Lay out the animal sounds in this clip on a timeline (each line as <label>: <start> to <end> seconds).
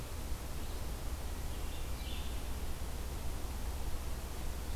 Red-eyed Vireo (Vireo olivaceus): 0.0 to 4.8 seconds
Hermit Thrush (Catharus guttatus): 1.3 to 2.3 seconds